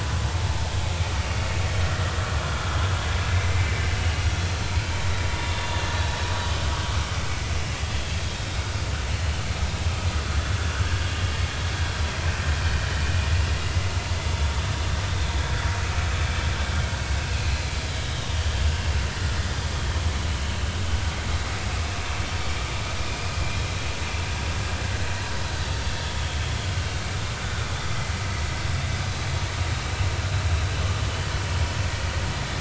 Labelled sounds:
3.3	3.7	vessel noise, 2.0 to 2.4 kHz
5.5	5.9	vessel noise, 2.7 to 3.7 kHz
10.8	11.1	vessel noise, 1.5 to 1.8 kHz
18.6	18.9	vessel noise, 2.7 to 2.9 kHz
23.1	23.3	vessel noise, 2.3 to 2.5 kHz

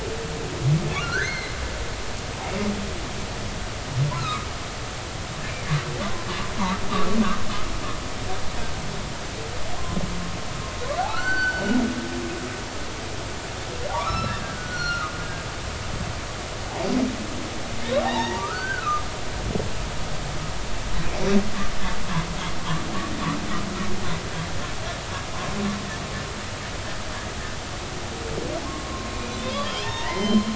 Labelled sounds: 0.9	1.6	humpback whale, 1.1 to 4.4 kHz
4.1	4.5	humpback whale, 1.1 to 1.4 kHz
11.1	11.6	humpback whale, 1.2 to 4.6 kHz
13.9	15.1	humpback whale, 0.80 to 5.9 kHz
18.0	19.1	humpback whale, 0.80 to 3.9 kHz
28.6	30.5	humpback whale, 0.83 to 4.3 kHz

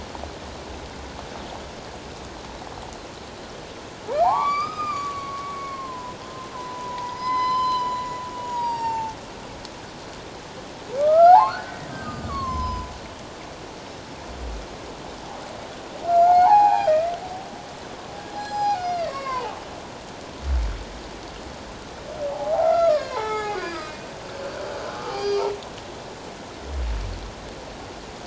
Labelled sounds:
4.1	6.2	humpback whale, 0.78 to 5.1 kHz
6.5	9.2	humpback whale, 0.81 to 7.7 kHz
11.0	12.9	humpback whale, 0.78 to 7.6 kHz
16.1	17.1	humpback whale, 0.78 to 4.5 kHz
18.3	19.5	humpback whale, 0.78 to 7.6 kHz
22.3	24.1	humpback whale, 0.78 to 5.2 kHz
24.9	25.4	humpback whale, 0.78 to 4.9 kHz

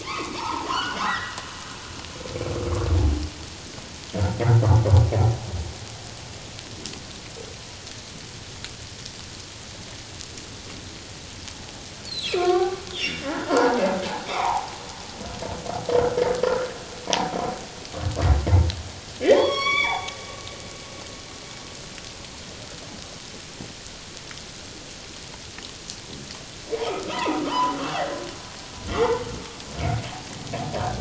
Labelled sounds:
0.0	1.4	humpback whale, 0.81 to 4.0 kHz
12.0	13.8	humpback whale, 0.78 to 4.6 kHz
14.3	14.7	humpback whale, 0.78 to 1.3 kHz
16.4	16.8	humpback whale, 1.2 to 1.9 kHz
17.1	17.4	humpback whale, 0.78 to 1.0 kHz
19.2	20.1	humpback whale, 0.78 to 5.7 kHz
26.8	28.2	humpback whale, 0.78 to 3.2 kHz
28.9	29.2	humpback whale, 0.84 to 2.2 kHz
30.8	31.0	humpback whale, 1.5 to 1.7 kHz

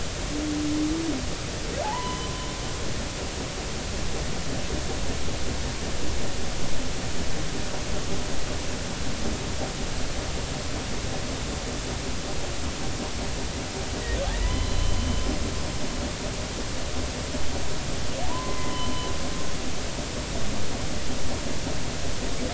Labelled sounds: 1.8	2.5	humpback whale, 0.80 to 3.1 kHz
14.3	15.0	humpback whale, 0.93 to 4.2 kHz
18.2	18.8	humpback whale, 0.80 to 2.1 kHz

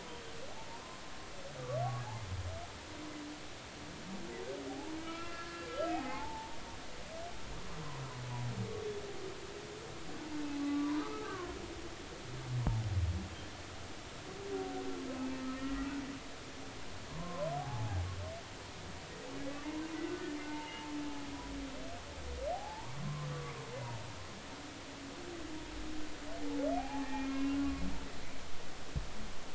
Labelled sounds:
0.7	1.0	humpback whale, 0.86 to 1.1 kHz
5.0	6.6	humpback whale, 0.80 to 2.8 kHz
10.6	11.5	humpback whale, 0.93 to 1.7 kHz
15.2	16.0	humpback whale, 1.3 to 2.7 kHz
16.5	18.0	humpback whale, 0.80 to 2.0 kHz
19.5	20.9	humpback whale, 0.86 to 2.9 kHz
22.5	23.3	humpback whale, 0.80 to 1.2 kHz
26.7	27.8	humpback whale, 0.80 to 2.8 kHz

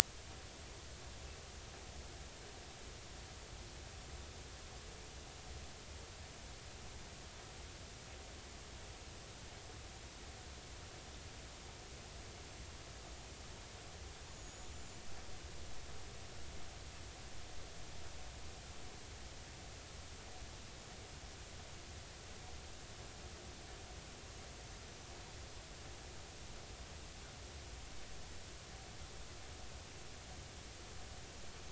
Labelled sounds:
14.3	15.0	small unidentified odontocete, 6.7 to 7.2 kHz
24.8	25.1	small unidentified odontocete, 6.0 to 6.1 kHz

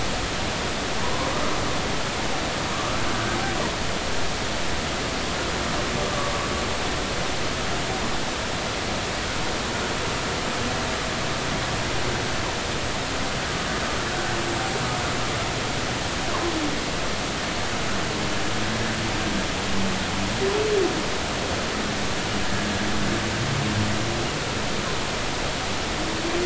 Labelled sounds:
1.0	1.3	humpback whale, 0.80 to 1.2 kHz
6.0	6.3	humpback whale, 1.1 to 1.2 kHz

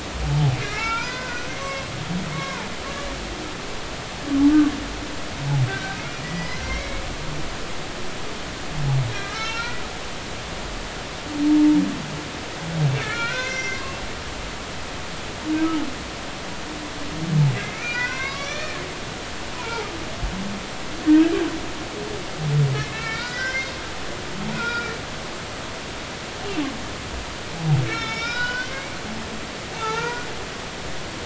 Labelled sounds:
0.2	1.8	humpback whale, 0.80 to 2.8 kHz
2.3	2.7	humpback whale, 0.83 to 2.3 kHz
5.7	7.0	humpback whale, 1.5 to 5.2 kHz
9.1	9.8	humpback whale, 1.2 to 6.4 kHz
12.9	13.8	humpback whale, 1.2 to 6.3 kHz
17.5	18.8	humpback whale, 0.93 to 5.1 kHz
19.6	19.9	humpback whale, 0.80 to 1.1 kHz
22.7	23.8	humpback whale, 1.3 to 5.9 kHz
24.5	24.9	humpback whale, 1.3 to 2.6 kHz
27.8	31.2	humpback whale, 0.83 to 5.9 kHz

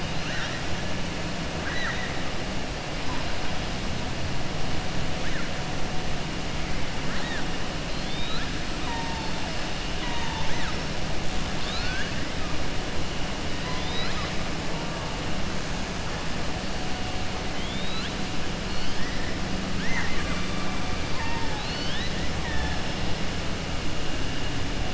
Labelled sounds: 1.5	2.1	killer whale, southern resident, 1.3 to 4.0 kHz
11.5	12.1	killer whale, southern resident, 1.3 to 6.1 kHz
13.6	14.3	killer whale, southern resident, 0.50 to 5.1 kHz
17.5	18.2	killer whale, southern resident, 2.2 to 4.2 kHz
19.7	20.7	killer whale, southern resident, 0.86 to 2.6 kHz
21.0	21.6	killer whale, southern resident, 0.84 to 2.8 kHz

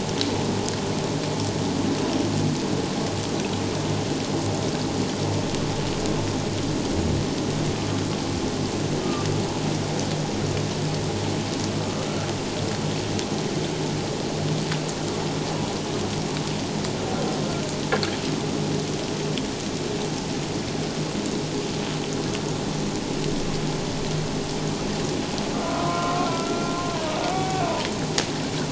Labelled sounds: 9.0	9.3	humpback whale, 1.1 to 1.3 kHz
25.6	26.7	humpback whale, 0.97 to 1.4 kHz
27.3	27.6	humpback whale, 0.78 to 2.3 kHz

